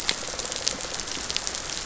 {"label": "biophony, rattle response", "recorder": "SoundTrap 500"}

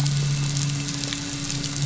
{"label": "anthrophony, boat engine", "recorder": "SoundTrap 500"}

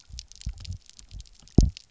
{"label": "biophony, double pulse", "recorder": "SoundTrap 300"}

